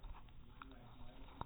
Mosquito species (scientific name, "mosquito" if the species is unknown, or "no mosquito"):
no mosquito